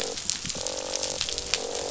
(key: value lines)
label: biophony, croak
recorder: SoundTrap 500